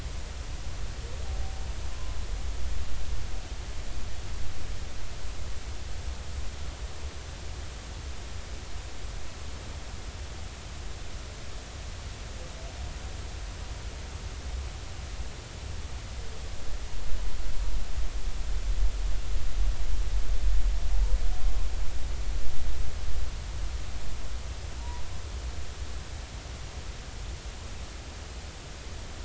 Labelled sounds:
1.9	2.2	humpback whale, 0.99 to 1.1 kHz
24.8	25.0	humpback whale, 0.83 to 1.0 kHz

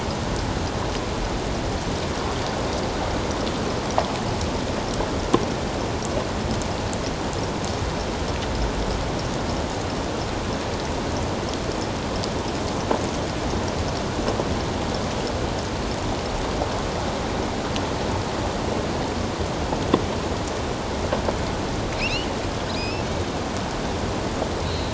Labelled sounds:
22.0	23.1	killer whale, offshore, 2.2 to 5.4 kHz
24.7	24.9	killer whale, offshore, 3.7 to 4.4 kHz

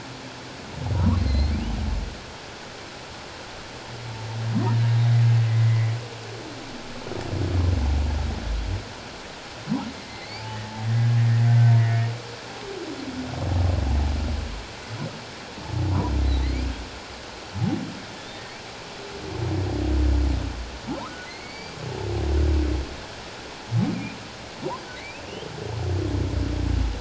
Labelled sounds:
1.0	1.5	humpback whale, 0.91 to 4.4 kHz
5.5	5.9	humpback whale, 1.9 to 2.1 kHz
10.0	10.4	humpback whale, 2.0 to 2.4 kHz
11.5	11.7	humpback whale, 1.5 to 1.6 kHz
16.2	16.7	humpback whale, 1.9 to 4.4 kHz
18.2	18.4	humpback whale, 3.4 to 3.7 kHz
21.2	21.8	humpback whale, 2.0 to 4.8 kHz
25.0	25.2	humpback whale, 1.9 to 2.7 kHz

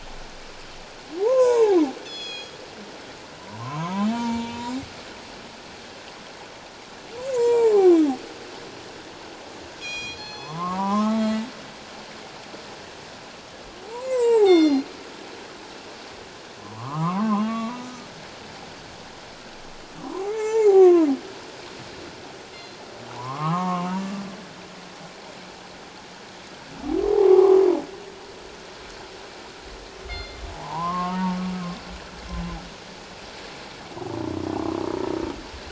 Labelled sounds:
1.2	1.8	humpback whale, 0.78 to 1.1 kHz
2.0	2.6	killer whale, northern resident, G clan, call N24ii, 2.4 to 7.6 kHz
3.4	4.8	humpback whale, 0.88 to 4.4 kHz
7.2	7.9	humpback whale, 0.78 to 7.7 kHz
9.8	10.6	killer whale, northern resident, G clan, call N24ii, 2.4 to 7.5 kHz
10.4	11.2	humpback whale, 0.78 to 1.4 kHz
14.0	14.8	humpback whale, 0.78 to 8.0 kHz
14.4	14.9	killer whale, northern resident, G clan, call N24ii, 2.8 to 6.5 kHz
16.6	18.1	humpback whale, 0.78 to 3.8 kHz
20.0	21.1	humpback whale, 0.78 to 7.3 kHz
22.5	22.8	killer whale, northern resident, G clan, call N24ii, 4.0 to 4.2 kHz
23.1	23.9	humpback whale, 0.78 to 1.4 kHz
27.1	27.6	humpback whale, 0.78 to 1.3 kHz
30.1	30.4	killer whale, northern resident, G clan, call N24ii, 2.0 to 5.0 kHz
30.5	31.4	humpback whale, 0.78 to 1.3 kHz
32.3	32.6	humpback whale, 0.97 to 1.1 kHz

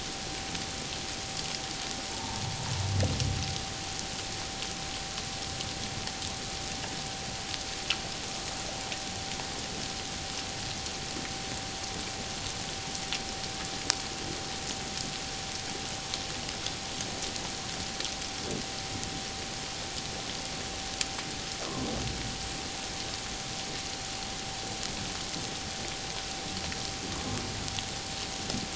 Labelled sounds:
2.1	2.4	humpback whale, 0.84 to 1.0 kHz

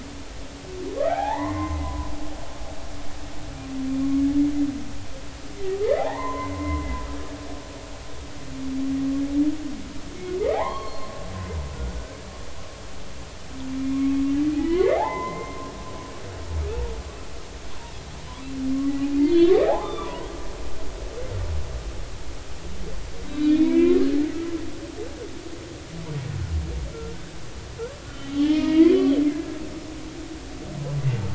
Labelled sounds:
1.0	2.1	humpback whale, 0.80 to 2.1 kHz
6.0	6.9	humpback whale, 0.80 to 2.1 kHz
10.5	11.1	humpback whale, 0.80 to 4.4 kHz
14.5	15.7	humpback whale, 0.80 to 3.2 kHz
19.2	20.3	humpback whale, 0.80 to 4.6 kHz
23.2	24.1	humpback whale, 0.99 to 4.0 kHz
28.0	29.0	humpback whale, 1.3 to 3.5 kHz
29.3	29.6	humpback whale, 1.6 to 1.7 kHz

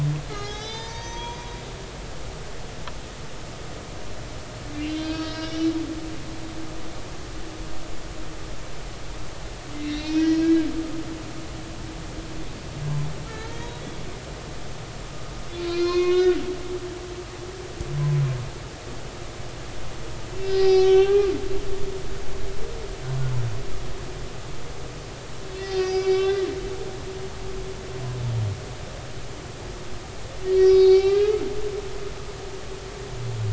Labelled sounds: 0.3	1.6	humpback whale, 0.80 to 6.9 kHz
4.8	5.7	humpback whale, 1.2 to 5.6 kHz
9.7	10.7	humpback whale, 1.5 to 5.8 kHz
13.3	13.7	humpback whale, 1.3 to 3.4 kHz
15.7	16.4	humpback whale, 0.99 to 5.1 kHz
20.4	21.3	humpback whale, 0.80 to 5.8 kHz
25.6	26.5	humpback whale, 1.5 to 5.1 kHz
30.4	31.4	humpback whale, 1.9 to 5.8 kHz
31.9	32.3	humpback whale, 3.0 to 3.4 kHz

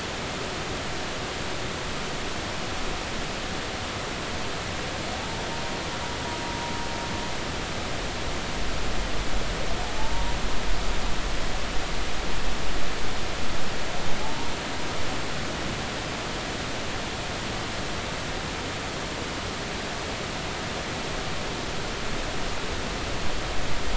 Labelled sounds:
10.0	10.4	humpback whale, 0.83 to 0.99 kHz
14.2	14.5	humpback whale, 0.83 to 0.99 kHz

